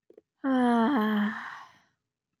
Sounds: Sigh